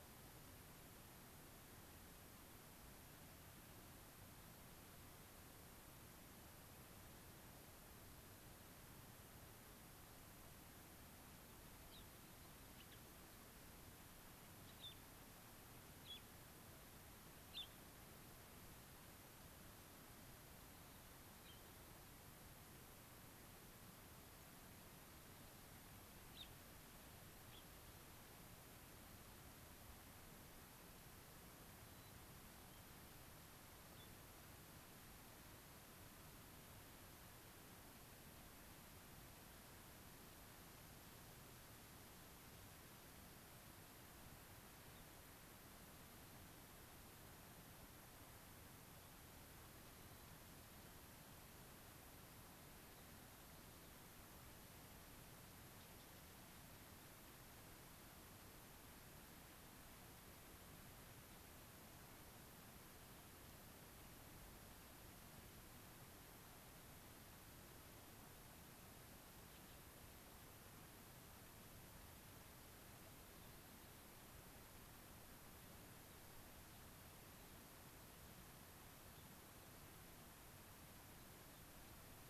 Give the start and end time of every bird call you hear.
11.9s-13.0s: Gray-crowned Rosy-Finch (Leucosticte tephrocotis)
14.6s-15.0s: Gray-crowned Rosy-Finch (Leucosticte tephrocotis)
16.0s-16.3s: Gray-crowned Rosy-Finch (Leucosticte tephrocotis)
17.5s-17.7s: Gray-crowned Rosy-Finch (Leucosticte tephrocotis)
21.4s-21.7s: Gray-crowned Rosy-Finch (Leucosticte tephrocotis)
26.3s-26.5s: Gray-crowned Rosy-Finch (Leucosticte tephrocotis)
27.5s-27.7s: Gray-crowned Rosy-Finch (Leucosticte tephrocotis)
31.8s-32.8s: White-crowned Sparrow (Zonotrichia leucophrys)
34.0s-34.1s: unidentified bird
44.9s-45.1s: unidentified bird
49.9s-50.4s: White-crowned Sparrow (Zonotrichia leucophrys)
79.2s-79.3s: unidentified bird
81.1s-82.0s: Gray-crowned Rosy-Finch (Leucosticte tephrocotis)

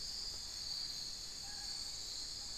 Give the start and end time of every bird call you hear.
0.1s-2.6s: unidentified bird

